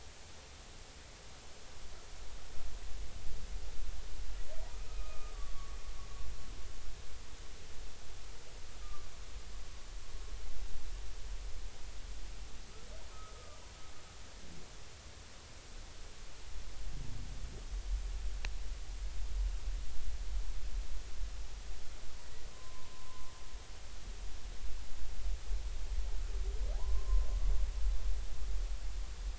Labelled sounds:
4.9	5.8	humpback whale, 1.1 to 2.6 kHz
8.8	9.1	humpback whale, 1.1 to 1.3 kHz
13.1	13.6	humpback whale, 1.2 to 1.4 kHz
22.5	23.3	humpback whale, 0.90 to 1.1 kHz
26.8	27.3	humpback whale, 0.90 to 1.1 kHz

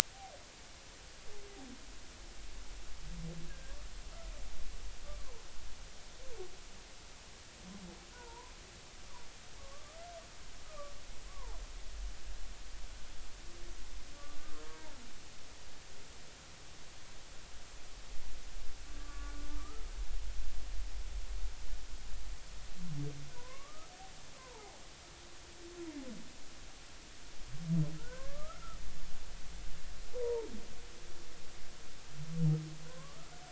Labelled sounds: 3.5	3.8	humpback whale, 1.5 to 1.7 kHz
8.1	8.5	humpback whale, 0.86 to 1.5 kHz
9.6	10.0	humpback whale, 1.1 to 1.3 kHz
10.7	11.6	humpback whale, 0.80 to 1.3 kHz
19.1	20.3	humpback whale, 1.1 to 1.5 kHz
23.3	23.9	humpback whale, 0.93 to 1.3 kHz
24.4	24.8	humpback whale, 0.80 to 1.1 kHz
28.0	28.8	humpback whale, 0.96 to 1.8 kHz
30.1	30.5	humpback whale, 0.86 to 1.1 kHz
32.9	33.3	humpback whale, 0.96 to 1.4 kHz

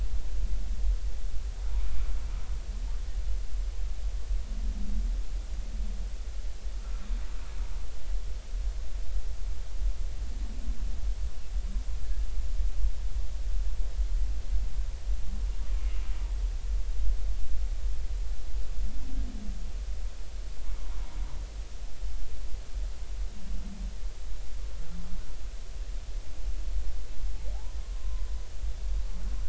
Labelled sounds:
20.8	21.2	humpback whale, 0.90 to 1.2 kHz
28.0	28.2	humpback whale, 0.96 to 1.1 kHz

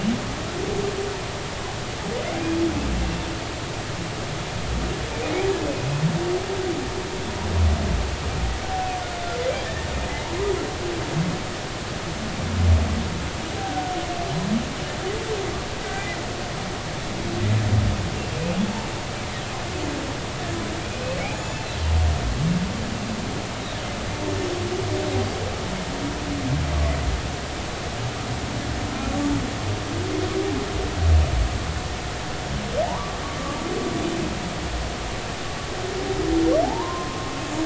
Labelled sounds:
9.6	9.9	humpback whale, 1.7 to 1.9 kHz
13.6	13.9	humpback whale, 1.4 to 1.6 kHz
15.9	16.2	humpback whale, 1.9 to 2.1 kHz
21.3	21.6	humpback whale, 6.9 to 7.1 kHz
32.8	33.2	humpback whale, 0.80 to 1.3 kHz
36.6	37.2	humpback whale, 0.80 to 1.1 kHz

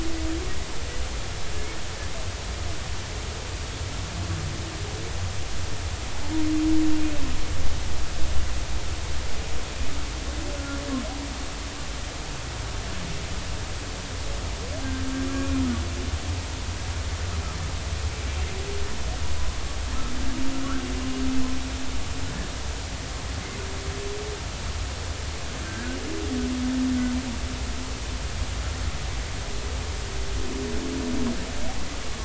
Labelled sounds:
10.6	10.8	humpback whale, 1.3 to 1.4 kHz
15.3	15.6	humpback whale, 1.1 to 2.5 kHz

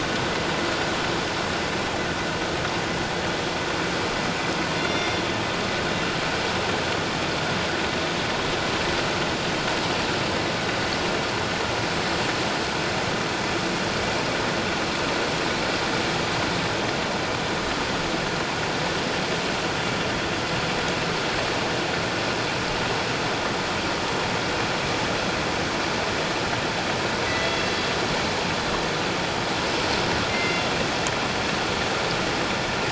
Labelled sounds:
4.8	5.2	killer whale, northern resident, G clan, 2.1 to 5.7 kHz
27.4	27.7	killer whale, northern resident, G clan, 3.3 to 3.4 kHz
30.3	30.6	killer whale, northern resident, G clan, 2.0 to 2.8 kHz

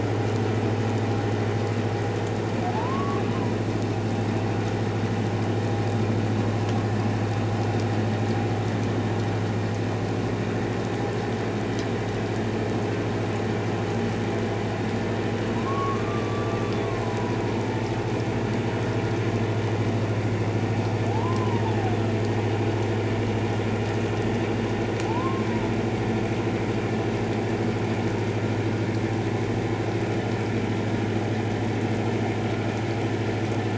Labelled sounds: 2.7	3.2	humpback whale, 0.81 to 1.2 kHz
15.5	17.8	humpback whale, 0.84 to 3.6 kHz
21.1	21.6	humpback whale, 0.78 to 1.1 kHz
25.1	25.4	humpback whale, 0.84 to 1.1 kHz

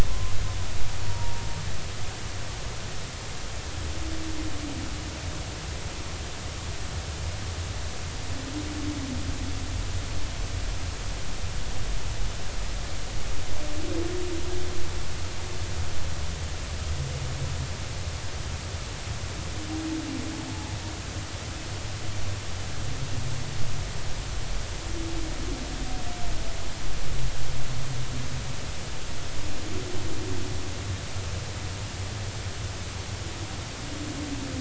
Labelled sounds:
0.1	0.3	humpback whale, 0.99 to 1.1 kHz
1.0	1.4	humpback whale, 0.90 to 0.99 kHz

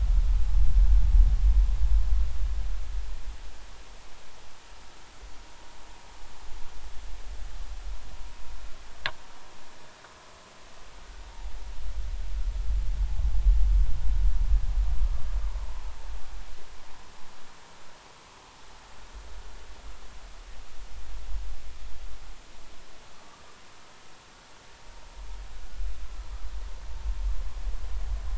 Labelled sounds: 15.0	15.3	vessel noise, 1.1 to 1.3 kHz

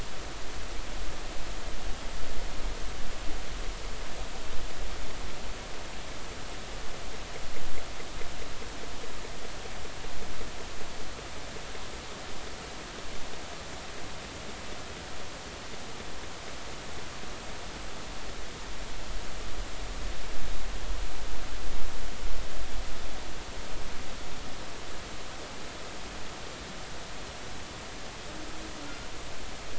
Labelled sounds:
28.8	29.1	killer whale, northern resident, G clan, call N24ii, 1.3 to 1.5 kHz

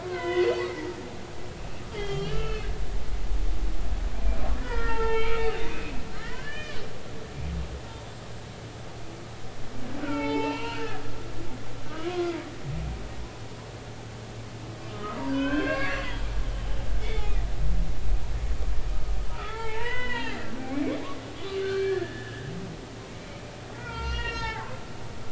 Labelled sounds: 0.0	1.0	humpback whale, 0.93 to 3.6 kHz
1.9	2.7	humpback whale, 1.2 to 3.4 kHz
4.6	5.4	humpback whale, 0.83 to 3.2 kHz
5.7	6.8	humpback whale, 1.1 to 3.1 kHz
10.0	11.0	humpback whale, 0.83 to 4.1 kHz
11.2	12.3	humpback whale, 0.99 to 5.0 kHz
14.9	16.0	humpback whale, 0.90 to 3.3 kHz
18.9	21.0	humpback whale, 0.83 to 4.0 kHz
21.6	22.5	humpback whale, 1.4 to 4.4 kHz
23.7	24.8	humpback whale, 0.80 to 5.6 kHz

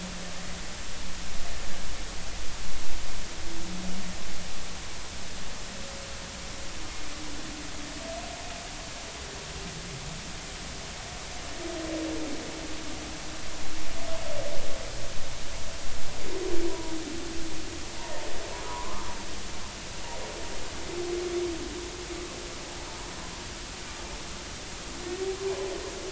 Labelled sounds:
16.7	16.9	humpback whale, 0.90 to 1.0 kHz
18.6	19.1	humpback whale, 0.93 to 1.3 kHz

